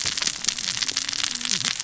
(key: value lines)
label: biophony, cascading saw
recorder: SoundTrap 600 or HydroMoth